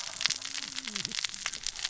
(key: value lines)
label: biophony, cascading saw
recorder: SoundTrap 600 or HydroMoth